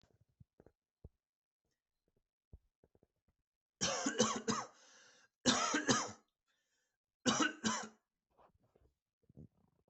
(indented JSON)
{
  "expert_labels": [
    {
      "quality": "good",
      "cough_type": "dry",
      "dyspnea": false,
      "wheezing": false,
      "stridor": false,
      "choking": false,
      "congestion": false,
      "nothing": true,
      "diagnosis": "upper respiratory tract infection",
      "severity": "mild"
    }
  ],
  "age": 47,
  "gender": "male",
  "respiratory_condition": false,
  "fever_muscle_pain": false,
  "status": "symptomatic"
}